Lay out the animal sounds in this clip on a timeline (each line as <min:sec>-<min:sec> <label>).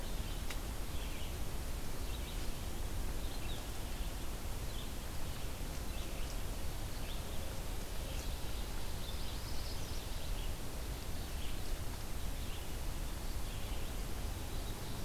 0:00.0-0:15.0 Red-eyed Vireo (Vireo olivaceus)
0:08.8-0:10.5 Magnolia Warbler (Setophaga magnolia)